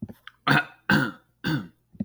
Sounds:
Throat clearing